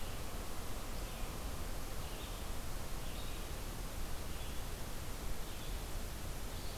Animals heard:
Red-eyed Vireo (Vireo olivaceus)

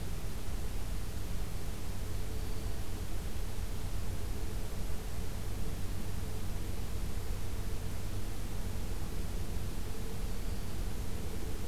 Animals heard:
Black-throated Green Warbler (Setophaga virens)

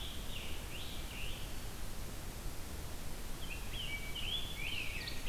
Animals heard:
Scarlet Tanager (Piranga olivacea)
Rose-breasted Grosbeak (Pheucticus ludovicianus)
Ovenbird (Seiurus aurocapilla)

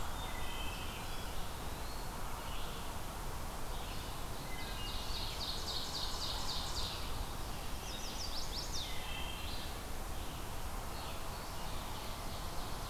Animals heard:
Chestnut-sided Warbler (Setophaga pensylvanica)
Red-eyed Vireo (Vireo olivaceus)
Eastern Wood-Pewee (Contopus virens)
Ovenbird (Seiurus aurocapilla)
Wood Thrush (Hylocichla mustelina)

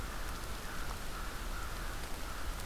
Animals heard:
American Crow (Corvus brachyrhynchos)

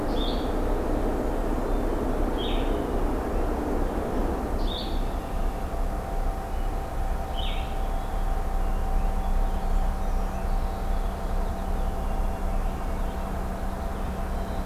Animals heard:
Brown Creeper (Certhia americana)
Blue-headed Vireo (Vireo solitarius)
Purple Finch (Haemorhous purpureus)
Red-winged Blackbird (Agelaius phoeniceus)

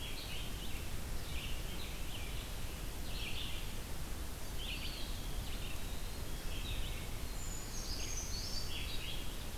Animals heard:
Eastern Wood-Pewee (Contopus virens)
Brown Creeper (Certhia americana)
Red-eyed Vireo (Vireo olivaceus)
Wood Thrush (Hylocichla mustelina)

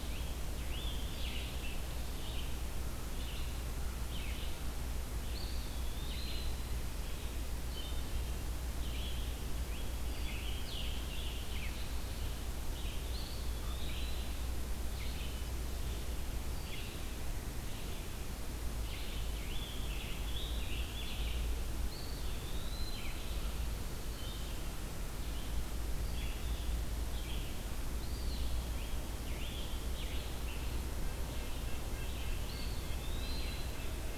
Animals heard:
Eastern Wood-Pewee (Contopus virens)
Common Raven (Corvus corax)
Scarlet Tanager (Piranga olivacea)
Wood Thrush (Hylocichla mustelina)
Red-breasted Nuthatch (Sitta canadensis)
Red-eyed Vireo (Vireo olivaceus)

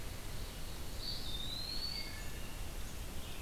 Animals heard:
Red-eyed Vireo (Vireo olivaceus)
Black-throated Blue Warbler (Setophaga caerulescens)
Wood Thrush (Hylocichla mustelina)
Eastern Wood-Pewee (Contopus virens)

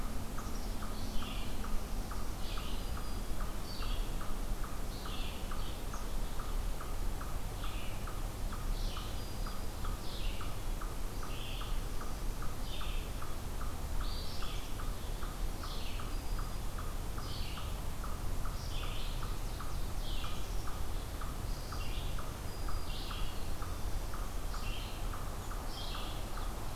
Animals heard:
Ovenbird (Seiurus aurocapilla)
Black-capped Chickadee (Poecile atricapillus)
Red-eyed Vireo (Vireo olivaceus)
Black-throated Green Warbler (Setophaga virens)
Eastern Chipmunk (Tamias striatus)

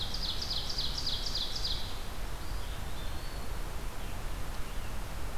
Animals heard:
Eastern Wood-Pewee (Contopus virens)
Ovenbird (Seiurus aurocapilla)
Blue-headed Vireo (Vireo solitarius)

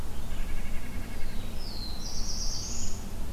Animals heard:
Black-throated Blue Warbler (Setophaga caerulescens)
White-breasted Nuthatch (Sitta carolinensis)

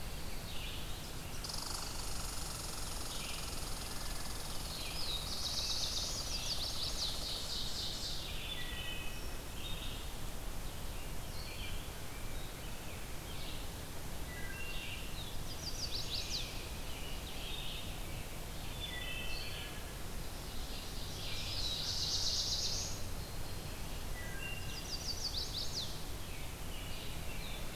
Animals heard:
American Robin (Turdus migratorius)
Pine Warbler (Setophaga pinus)
Ovenbird (Seiurus aurocapilla)
Black-throated Blue Warbler (Setophaga caerulescens)
Red-eyed Vireo (Vireo olivaceus)
Red Squirrel (Tamiasciurus hudsonicus)
Chestnut-sided Warbler (Setophaga pensylvanica)
Rose-breasted Grosbeak (Pheucticus ludovicianus)
Wood Thrush (Hylocichla mustelina)

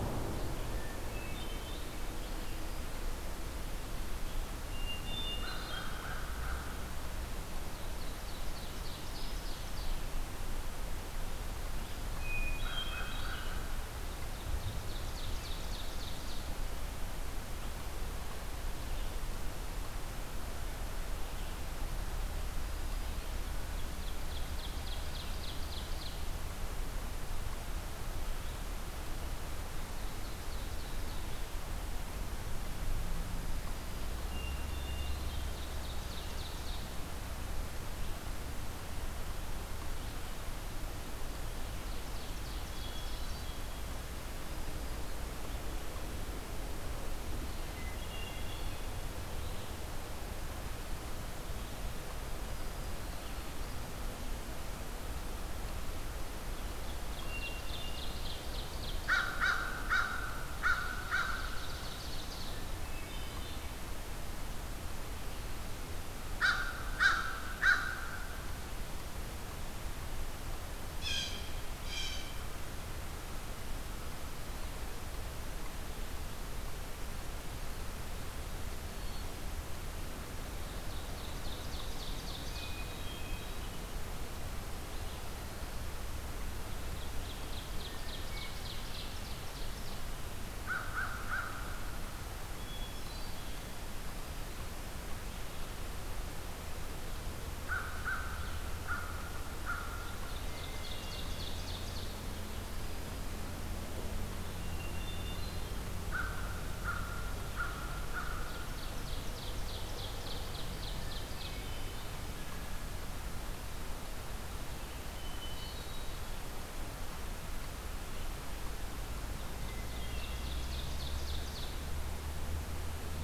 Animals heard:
Ovenbird (Seiurus aurocapilla)
American Crow (Corvus brachyrhynchos)
Blue Jay (Cyanocitta cristata)
Hermit Thrush (Catharus guttatus)

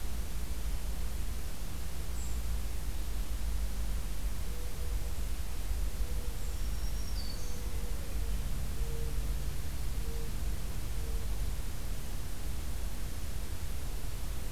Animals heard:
Brown Creeper (Certhia americana)
Black-throated Green Warbler (Setophaga virens)

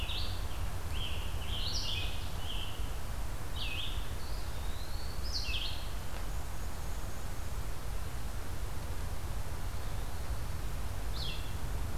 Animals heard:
Red-eyed Vireo (Vireo olivaceus)
Scarlet Tanager (Piranga olivacea)
Eastern Wood-Pewee (Contopus virens)
Black-and-white Warbler (Mniotilta varia)

